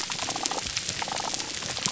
{"label": "biophony, damselfish", "recorder": "SoundTrap 300"}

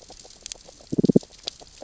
{"label": "biophony, damselfish", "recorder": "SoundTrap 600 or HydroMoth"}
{"label": "biophony, grazing", "recorder": "SoundTrap 600 or HydroMoth"}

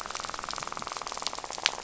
{"label": "biophony, rattle", "recorder": "SoundTrap 500"}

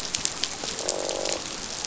{"label": "biophony, croak", "recorder": "SoundTrap 500"}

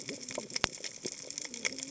{"label": "biophony, cascading saw", "recorder": "HydroMoth"}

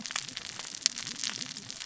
{"label": "biophony, cascading saw", "recorder": "SoundTrap 600 or HydroMoth"}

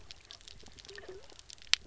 {"label": "biophony", "recorder": "SoundTrap 300"}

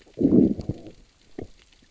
{"label": "biophony, growl", "recorder": "SoundTrap 600 or HydroMoth"}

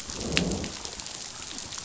{"label": "biophony, growl", "recorder": "SoundTrap 500"}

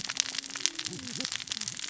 {"label": "biophony, cascading saw", "recorder": "SoundTrap 600 or HydroMoth"}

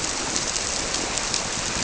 {"label": "biophony", "recorder": "SoundTrap 300"}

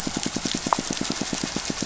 {"label": "biophony, pulse", "recorder": "SoundTrap 500"}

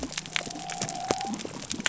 {"label": "biophony", "recorder": "SoundTrap 300"}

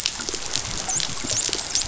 {"label": "biophony, dolphin", "recorder": "SoundTrap 500"}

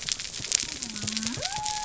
{"label": "biophony", "recorder": "SoundTrap 300"}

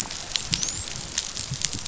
{"label": "biophony, dolphin", "recorder": "SoundTrap 500"}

